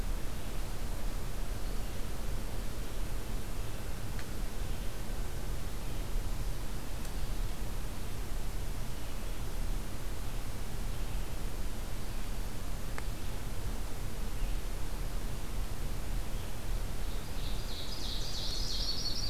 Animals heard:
Yellow-rumped Warbler (Setophaga coronata), Red-eyed Vireo (Vireo olivaceus), Ovenbird (Seiurus aurocapilla)

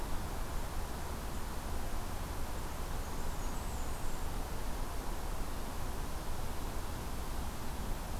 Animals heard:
Blackburnian Warbler (Setophaga fusca)

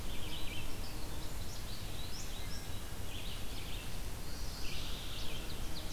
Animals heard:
Red-eyed Vireo (Vireo olivaceus), American Goldfinch (Spinus tristis), Mourning Warbler (Geothlypis philadelphia)

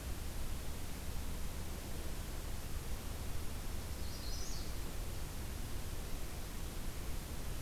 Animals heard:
Magnolia Warbler (Setophaga magnolia)

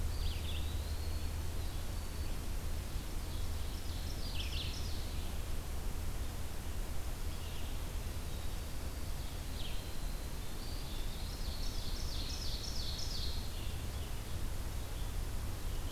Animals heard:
Black-throated Green Warbler (Setophaga virens), Ovenbird (Seiurus aurocapilla), Eastern Wood-Pewee (Contopus virens), Red-eyed Vireo (Vireo olivaceus)

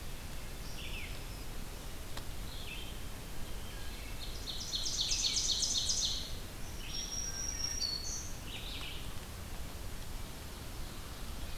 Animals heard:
Red-eyed Vireo (Vireo olivaceus), Ovenbird (Seiurus aurocapilla), Black-throated Green Warbler (Setophaga virens), Wood Thrush (Hylocichla mustelina)

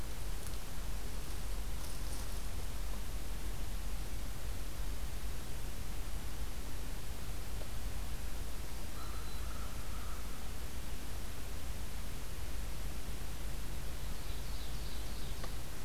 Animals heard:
American Crow (Corvus brachyrhynchos), Black-throated Green Warbler (Setophaga virens), Ovenbird (Seiurus aurocapilla)

